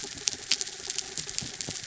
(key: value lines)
label: anthrophony, mechanical
recorder: SoundTrap 300